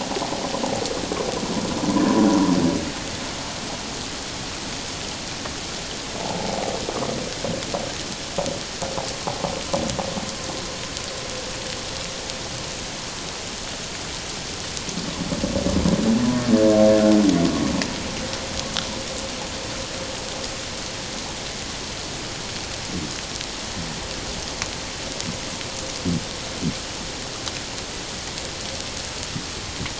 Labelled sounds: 6.2	6.5	humpback whale, 0.78 to 0.94 kHz

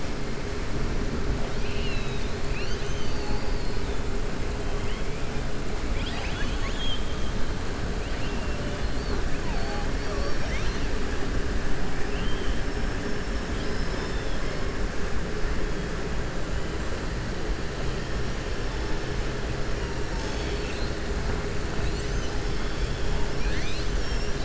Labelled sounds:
1.5	2.3	killer whale, southern resident, 2.4 to 4.4 kHz
5.8	7.2	killer whale, southern resident, 1.1 to 6.2 kHz
8.1	8.5	killer whale, southern resident, 1.9 to 3.5 kHz
9.9	10.9	killer whale, southern resident, 0.57 to 6.3 kHz
11.9	12.6	killer whale, southern resident, 1.8 to 3.3 kHz
13.5	14.6	killer whale, southern resident, 3.1 to 5.4 kHz

